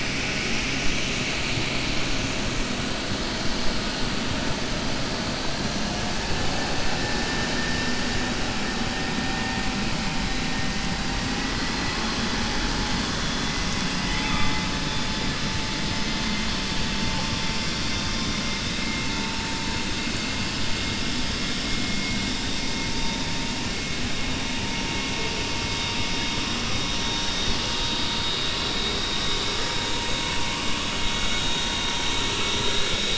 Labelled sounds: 13.9	14.7	killer whale, 0.84 to 3.5 kHz

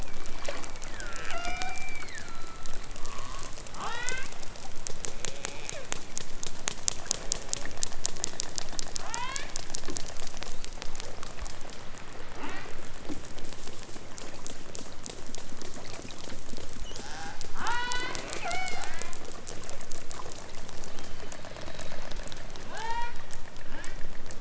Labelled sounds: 0.0	4.4	killer whale, southern Alaska resident, 0.46 to 6.3 kHz
5.1	5.9	killer whale, southern Alaska resident, 0.51 to 4.4 kHz
9.0	9.5	killer whale, southern Alaska resident, 0.46 to 4.9 kHz
12.3	12.8	killer whale, southern Alaska resident, 0.37 to 5.2 kHz
16.8	19.2	killer whale, southern Alaska resident, 0.32 to 8.0 kHz
20.9	21.6	killer whale, southern Alaska resident, 2.3 to 5.5 kHz
22.7	23.2	killer whale, southern Alaska resident, 0.46 to 8.0 kHz
23.6	24.1	killer whale, southern Alaska resident, 0.51 to 3.7 kHz

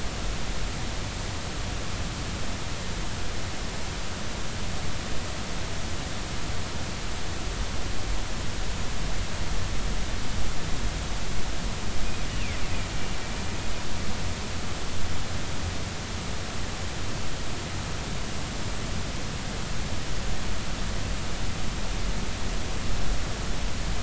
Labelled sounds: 12.3	12.9	killer whale, Bigg's (transient), 1.9 to 2.9 kHz

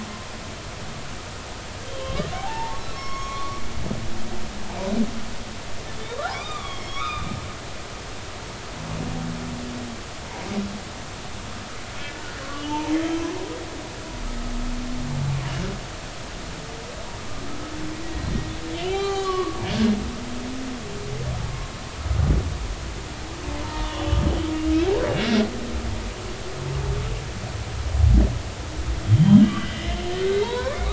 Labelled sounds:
2.0	3.6	humpback whale, 0.80 to 6.6 kHz
6.1	7.3	humpback whale, 0.80 to 5.7 kHz
12.0	12.9	humpback whale, 0.80 to 3.1 kHz
18.8	19.6	humpback whale, 0.80 to 6.8 kHz
23.6	24.1	humpback whale, 0.86 to 3.6 kHz
29.1	30.9	humpback whale, 0.83 to 3.4 kHz

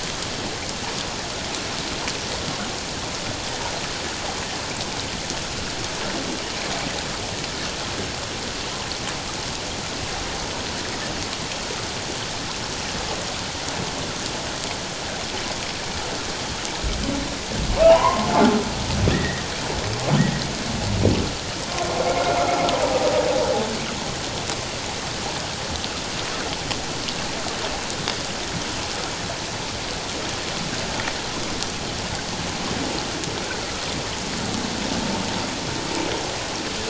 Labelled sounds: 17.8	18.3	humpback whale, 0.78 to 3.1 kHz
19.1	19.5	humpback whale, 1.7 to 2.0 kHz

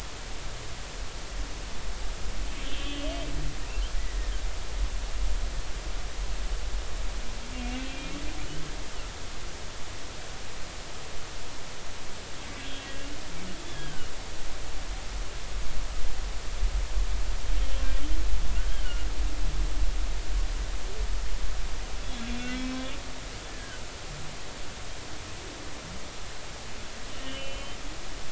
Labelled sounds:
2.6	3.1	humpback whale, 2.6 to 3.3 kHz
4.0	4.3	humpback whale, 1.7 to 2.0 kHz
7.8	8.1	humpback whale, 2.3 to 2.8 kHz
13.7	14.1	humpback whale, 1.4 to 1.8 kHz
18.6	19.1	humpback whale, 1.4 to 3.3 kHz
22.2	22.7	humpback whale, 2.2 to 2.8 kHz
23.5	23.8	humpback whale, 1.4 to 1.8 kHz
27.2	27.8	humpback whale, 2.4 to 3.3 kHz

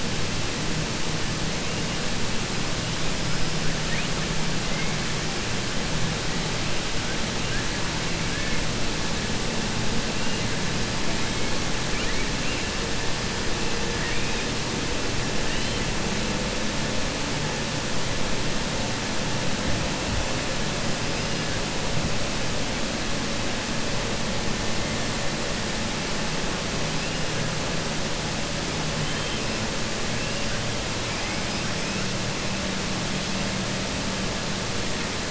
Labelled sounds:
13.9	14.4	killer whale, 1.6 to 2.8 kHz

